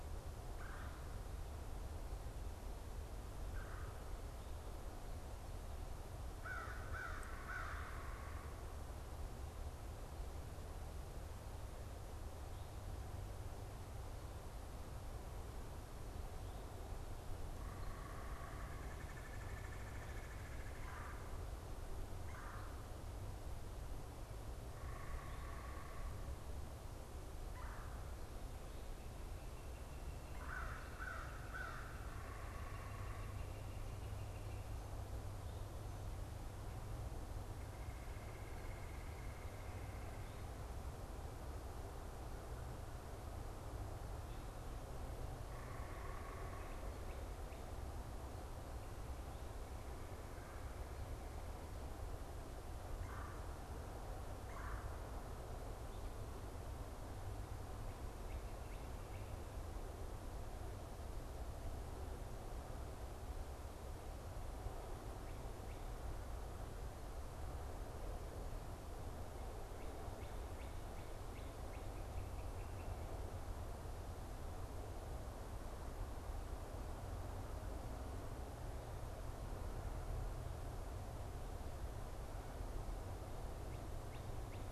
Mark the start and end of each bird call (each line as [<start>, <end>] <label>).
[0.61, 4.01] Red-bellied Woodpecker (Melanerpes carolinus)
[6.21, 8.41] American Crow (Corvus brachyrhynchos)
[17.41, 18.91] unidentified bird
[18.81, 21.51] Red-bellied Woodpecker (Melanerpes carolinus)
[22.11, 22.71] Red-bellied Woodpecker (Melanerpes carolinus)
[24.41, 26.31] unidentified bird
[27.41, 28.01] Red-bellied Woodpecker (Melanerpes carolinus)
[30.11, 31.81] American Crow (Corvus brachyrhynchos)
[31.91, 33.41] unidentified bird
[31.91, 34.71] Northern Flicker (Colaptes auratus)
[37.31, 40.81] Red-bellied Woodpecker (Melanerpes carolinus)
[45.41, 46.91] unidentified bird
[52.91, 54.91] Red-bellied Woodpecker (Melanerpes carolinus)
[57.61, 59.61] Northern Cardinal (Cardinalis cardinalis)
[70.11, 73.21] Northern Cardinal (Cardinalis cardinalis)